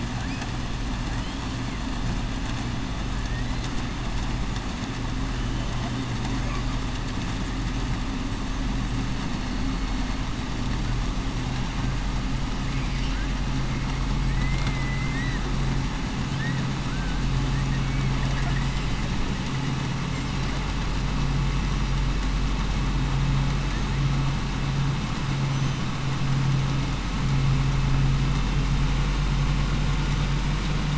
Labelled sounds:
14.3	15.4	killer whale, southern resident, 1.3 to 5.7 kHz

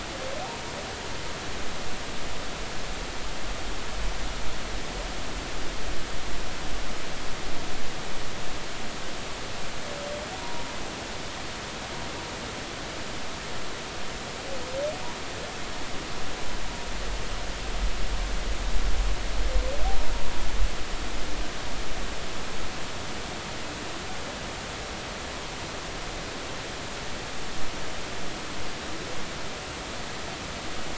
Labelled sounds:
10.4	10.7	humpback whale, 0.90 to 0.99 kHz

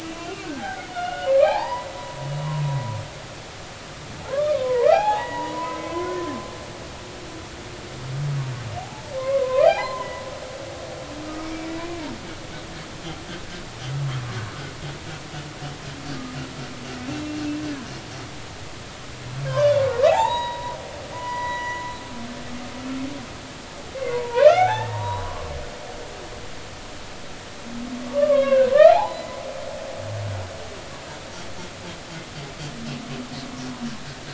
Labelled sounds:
1.4	2.0	humpback whale, 0.80 to 2.6 kHz
4.3	6.3	humpback whale, 0.80 to 3.4 kHz
8.8	10.1	humpback whale, 0.80 to 4.2 kHz
11.2	11.7	humpback whale, 1.2 to 2.4 kHz
19.5	20.8	humpback whale, 0.80 to 3.9 kHz
21.1	21.8	humpback whale, 0.93 to 6.9 kHz
24.0	25.5	humpback whale, 0.80 to 5.3 kHz
28.0	29.4	humpback whale, 0.80 to 4.2 kHz

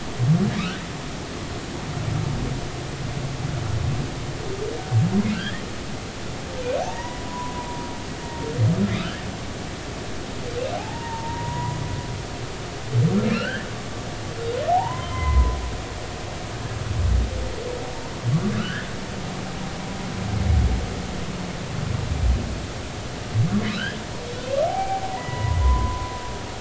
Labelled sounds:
5.3	5.6	humpback whale, 1.3 to 1.9 kHz
6.8	7.7	humpback whale, 0.80 to 2.0 kHz
8.9	9.3	humpback whale, 1.2 to 1.9 kHz
10.8	11.8	humpback whale, 0.80 to 1.0 kHz
13.3	13.7	humpback whale, 1.3 to 3.2 kHz
14.7	15.6	humpback whale, 0.80 to 3.2 kHz
18.6	18.9	humpback whale, 1.2 to 3.3 kHz
23.7	26.1	humpback whale, 0.80 to 3.3 kHz

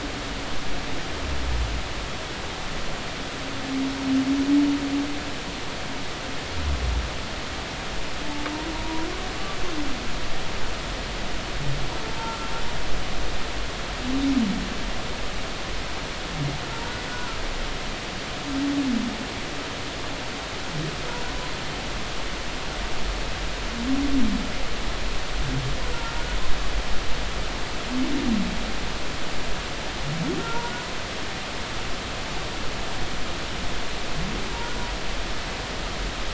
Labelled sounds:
8.8	9.0	humpback whale, 0.93 to 1.0 kHz
17.1	17.4	humpback whale, 1.3 to 1.5 kHz
25.8	26.1	humpback whale, 1.3 to 1.5 kHz
30.4	30.7	humpback whale, 0.86 to 0.99 kHz

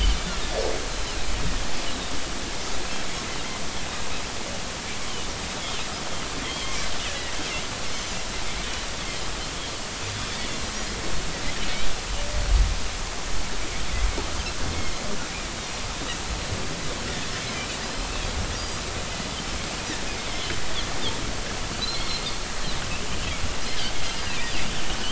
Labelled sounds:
0.9	1.2	Pacific white-sided dolphin, 3.9 to 4.1 kHz
6.4	6.9	Pacific white-sided dolphin, 2.0 to 3.4 kHz
7.9	8.1	Pacific white-sided dolphin, 6.0 to 6.3 kHz
15.6	15.9	Pacific white-sided dolphin, 5.6 to 5.9 kHz
18.6	18.9	Pacific white-sided dolphin, 4.7 to 5.1 kHz
22.0	22.3	Pacific white-sided dolphin, 4.0 to 4.4 kHz
24.4	24.8	Pacific white-sided dolphin, 4.7 to 4.9 kHz

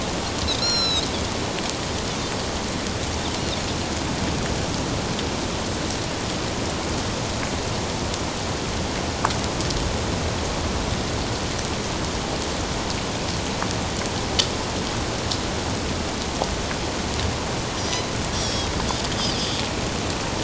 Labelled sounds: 0.6	1.1	Pacific white-sided dolphin, 1.3 to 7.9 kHz
17.8	18.7	Pacific white-sided dolphin, 3.2 to 5.9 kHz

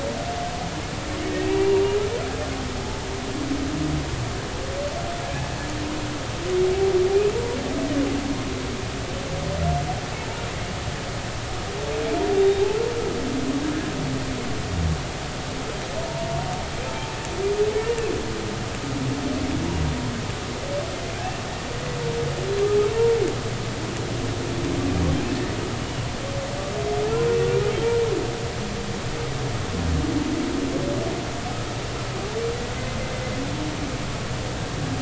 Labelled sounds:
1.3	1.7	humpback whale, 1.8 to 2.0 kHz
3.8	4.1	humpback whale, 0.83 to 0.93 kHz
12.4	12.8	humpback whale, 0.80 to 3.8 kHz

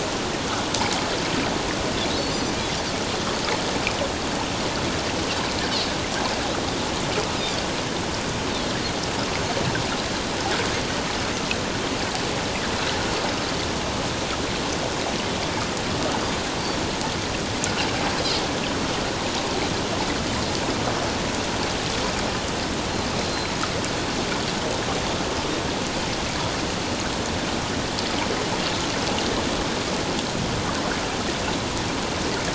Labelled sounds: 2.2	2.6	Pacific white-sided dolphin, 4.3 to 4.9 kHz
7.3	7.6	Pacific white-sided dolphin, 3.3 to 5.1 kHz
23.2	23.5	Pacific white-sided dolphin, 4.0 to 4.2 kHz

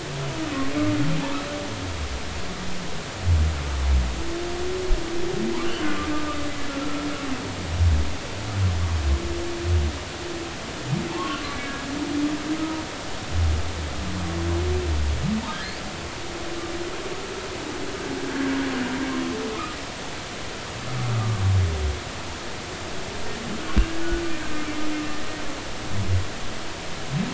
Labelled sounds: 5.6	6.4	humpback whale, 1.1 to 3.2 kHz
11.1	11.9	humpback whale, 0.83 to 3.3 kHz
12.6	12.8	humpback whale, 1.2 to 1.3 kHz
23.6	24.0	humpback whale, 1.4 to 1.7 kHz

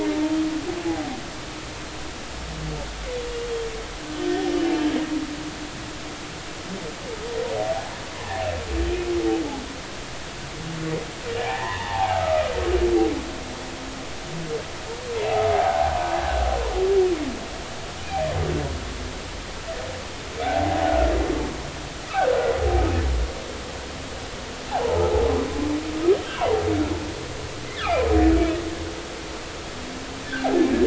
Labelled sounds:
4.2	5.0	humpback whale, 2.9 to 3.4 kHz
8.1	8.5	humpback whale, 0.80 to 1.1 kHz
11.4	12.5	humpback whale, 0.80 to 3.7 kHz
15.5	15.9	humpback whale, 0.80 to 0.96 kHz
20.4	21.1	humpback whale, 0.80 to 1.5 kHz
24.7	25.0	humpback whale, 0.80 to 1.0 kHz
26.4	26.6	humpback whale, 0.80 to 1.1 kHz

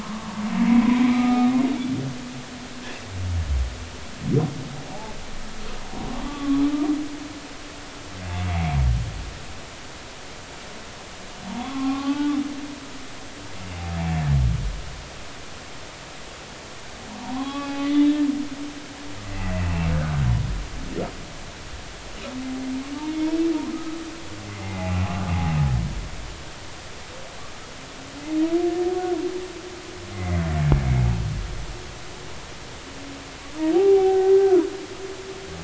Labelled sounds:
0.0	1.5	humpback whale, 0.90 to 2.4 kHz
5.9	6.6	humpback whale, 0.93 to 1.2 kHz
11.5	12.4	humpback whale, 0.80 to 1.5 kHz
17.2	18.2	humpback whale, 0.80 to 3.9 kHz
19.2	19.9	humpback whale, 1.9 to 2.8 kHz
23.1	23.4	humpback whale, 2.1 to 2.3 kHz
24.5	25.0	humpback whale, 0.80 to 2.1 kHz
30.1	30.4	humpback whale, 1.9 to 2.2 kHz
33.7	34.7	humpback whale, 0.80 to 1.6 kHz

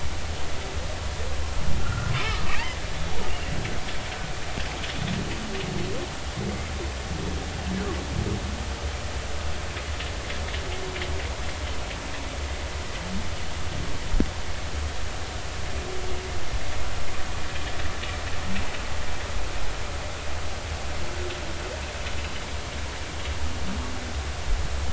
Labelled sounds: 1.8	3.2	humpback whale, 1.1 to 3.5 kHz

